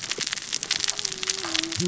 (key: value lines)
label: biophony, cascading saw
recorder: SoundTrap 600 or HydroMoth